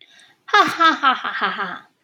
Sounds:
Laughter